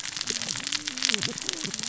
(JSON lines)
{"label": "biophony, cascading saw", "recorder": "SoundTrap 600 or HydroMoth"}